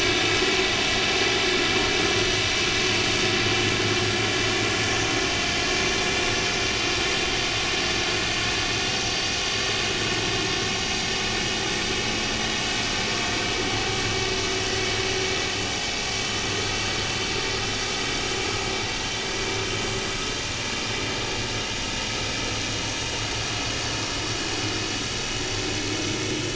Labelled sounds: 16.6	16.9	vessel noise, 6.8 to 7.0 kHz

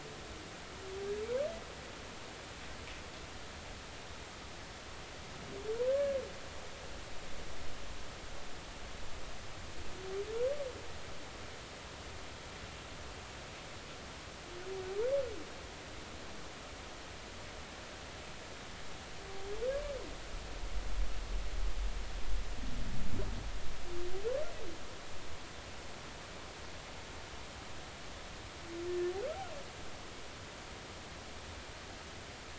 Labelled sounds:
5.9	6.2	humpback whale, 1.5 to 1.8 kHz

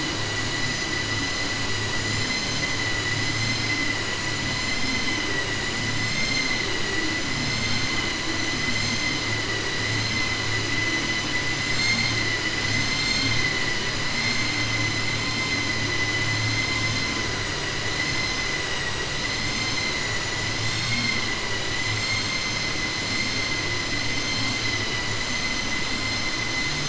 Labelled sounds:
18.6	19.0	vessel noise, 1.8 to 3.9 kHz

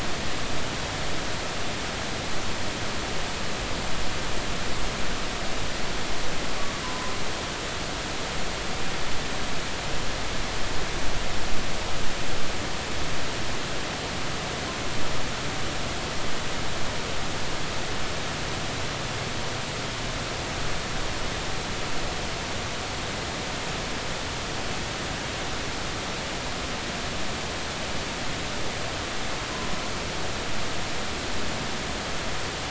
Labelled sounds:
6.8	7.1	humpback whale, 0.93 to 1.1 kHz

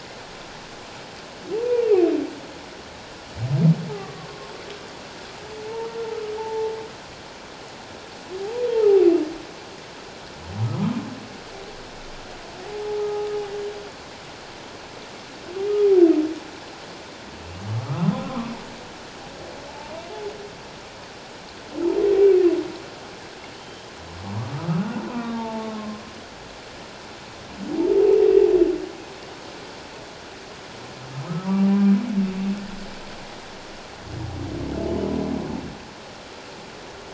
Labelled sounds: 1.5	1.8	humpback whale, 0.78 to 1.0 kHz
4.0	4.2	humpback whale, 1.8 to 2.1 kHz
6.4	6.7	humpback whale, 0.78 to 0.94 kHz
12.9	13.3	humpback whale, 1.2 to 1.3 kHz
17.8	18.5	humpback whale, 0.97 to 1.4 kHz
19.7	20.0	humpback whale, 0.81 to 1.0 kHz
23.6	26.0	humpback whale, 0.84 to 3.8 kHz
31.4	31.7	humpback whale, 1.1 to 1.2 kHz

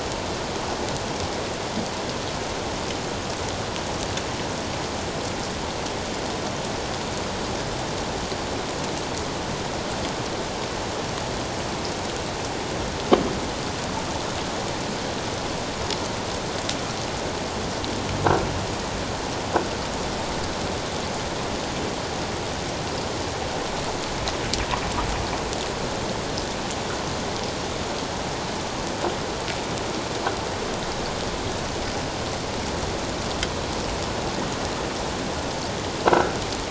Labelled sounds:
36.0	36.4	croaking sound likely from a nearby submerged object, 1.3 to 1.7 kHz

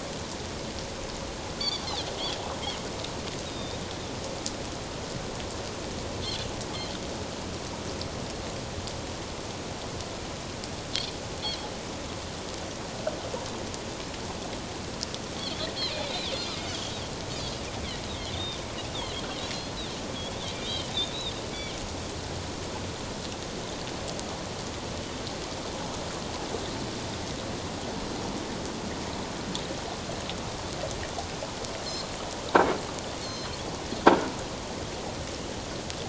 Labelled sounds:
1.6	1.8	Pacific white-sided dolphin, 3.3 to 4.8 kHz
3.4	3.8	Pacific white-sided dolphin, 3.5 to 5.0 kHz
11.4	11.7	Pacific white-sided dolphin, 3.1 to 3.5 kHz
15.9	16.7	Pacific white-sided dolphin, 2.1 to 5.0 kHz
18.3	18.6	Pacific white-sided dolphin, 3.5 to 3.8 kHz
20.6	20.9	Pacific white-sided dolphin, 2.9 to 3.3 kHz
31.8	32.1	Pacific white-sided dolphin, 4.0 to 4.4 kHz
33.2	33.5	Pacific white-sided dolphin, 4.1 to 6.5 kHz

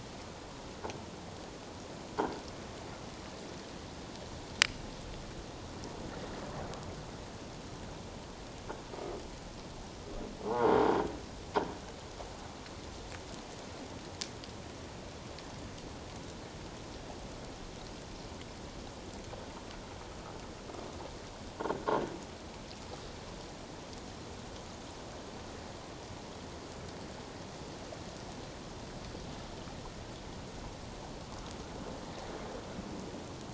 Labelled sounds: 10.4	10.8	croaking sound likely from a nearby submerged object, 0.78 to 1.5 kHz

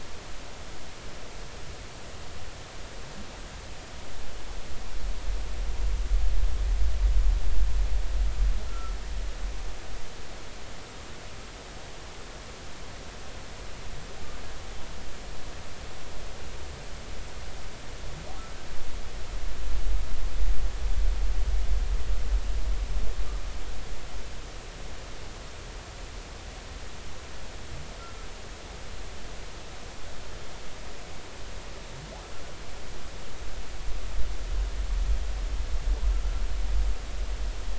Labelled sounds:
8.7	9.0	humpback whale, 1.2 to 1.4 kHz
28.0	28.3	humpback whale, 1.3 to 1.4 kHz

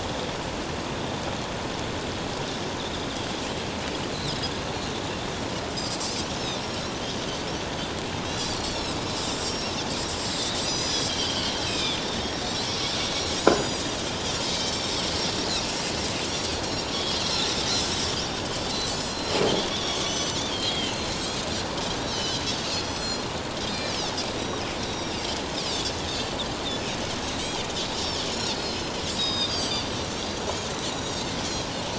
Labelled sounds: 6.5	6.8	Pacific white-sided dolphin, 5.4 to 5.6 kHz
8.2	9.0	Pacific white-sided dolphin, 3.7 to 5.9 kHz
9.3	9.8	Pacific white-sided dolphin, 5.0 to 5.7 kHz
10.6	12.7	Pacific white-sided dolphin, 1.8 to 8.0 kHz
13.3	13.8	Pacific white-sided dolphin, 4.7 to 7.9 kHz
14.7	14.9	Pacific white-sided dolphin, 5.2 to 5.6 kHz
16.5	17.5	Pacific white-sided dolphin, 3.4 to 7.2 kHz
18.7	22.4	Pacific white-sided dolphin, 2.6 to 7.9 kHz
22.8	23.3	Pacific white-sided dolphin, 4.1 to 7.8 kHz
23.6	25.2	Pacific white-sided dolphin, 3.6 to 7.4 kHz
27.2	27.6	Pacific white-sided dolphin, 7.6 to 7.8 kHz
28.4	29.9	Pacific white-sided dolphin, 3.6 to 8.0 kHz
30.9	31.3	Pacific white-sided dolphin, 3.6 to 6.8 kHz

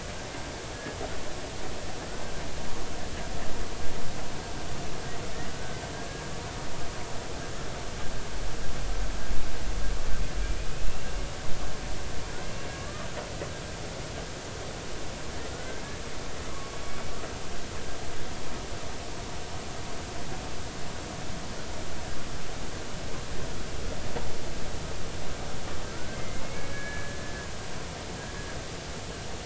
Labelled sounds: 5.5	5.8	humpback whale, 1.4 to 1.6 kHz
10.7	11.2	humpback whale, 2.5 to 2.8 kHz
12.8	13.1	humpback whale, 1.1 to 1.3 kHz
15.4	15.8	humpback whale, 1.4 to 1.6 kHz
16.5	16.8	humpback whale, 1.0 to 1.3 kHz
26.2	27.2	humpback whale, 1.6 to 2.4 kHz

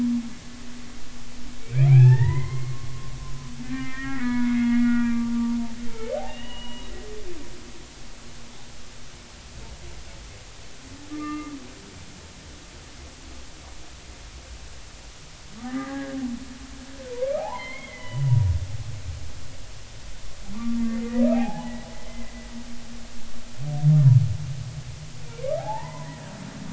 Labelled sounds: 1.6	2.9	humpback whale, 0.80 to 2.8 kHz
3.6	5.3	humpback whale, 0.93 to 2.5 kHz
5.9	6.9	humpback whale, 1.7 to 3.0 kHz
11.1	11.6	humpback whale, 1.1 to 2.8 kHz
15.6	16.2	humpback whale, 0.80 to 2.1 kHz
17.4	18.4	humpback whale, 0.80 to 3.1 kHz
21.3	22.5	humpback whale, 0.80 to 2.6 kHz
25.4	26.2	humpback whale, 0.80 to 2.1 kHz

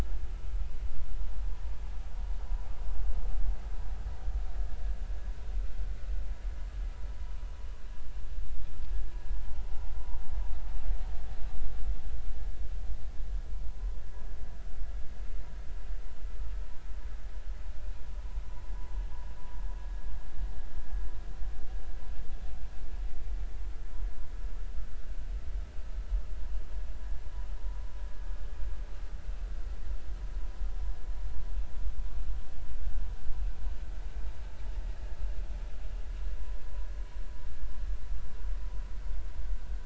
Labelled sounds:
36.6	36.9	vessel noise, 0.93 to 1.1 kHz

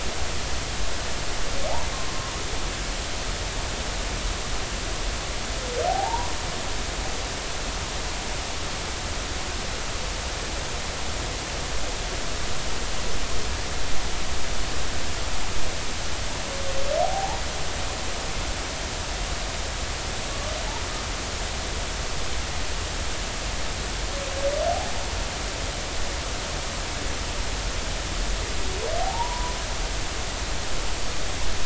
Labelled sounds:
5.9	6.3	humpback whale, 0.80 to 1.1 kHz
17.0	17.4	humpback whale, 0.80 to 0.99 kHz
29.0	29.5	humpback whale, 0.80 to 1.1 kHz

